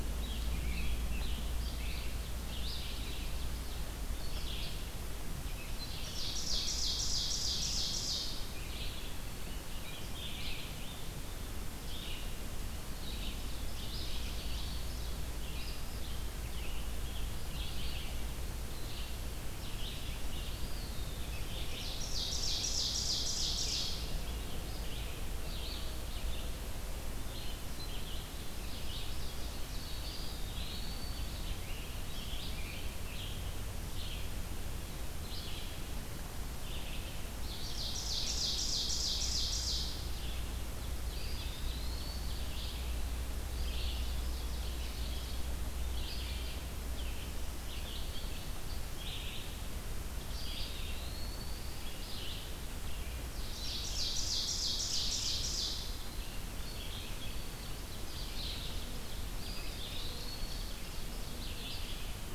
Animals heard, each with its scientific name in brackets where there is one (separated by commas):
Eastern Wood-Pewee (Contopus virens), Black-throated Green Warbler (Setophaga virens), Ovenbird (Seiurus aurocapilla), Scarlet Tanager (Piranga olivacea), Red-eyed Vireo (Vireo olivaceus)